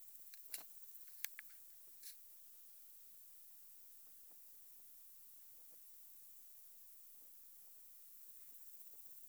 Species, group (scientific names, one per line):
Omocestus bolivari
Orthoptera